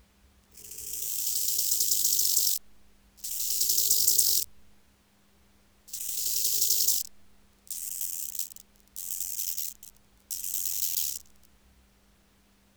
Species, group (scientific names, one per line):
Chorthippus biguttulus
Orthoptera